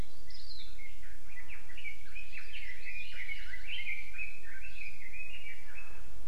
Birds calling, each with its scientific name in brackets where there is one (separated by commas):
Hawaii Akepa (Loxops coccineus), Hawaii Amakihi (Chlorodrepanis virens), Red-billed Leiothrix (Leiothrix lutea)